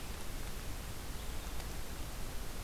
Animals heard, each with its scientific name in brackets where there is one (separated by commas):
Red-eyed Vireo (Vireo olivaceus)